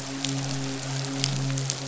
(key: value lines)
label: biophony, midshipman
recorder: SoundTrap 500